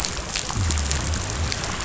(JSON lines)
{"label": "biophony", "recorder": "SoundTrap 500"}